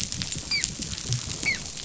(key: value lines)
label: biophony, dolphin
recorder: SoundTrap 500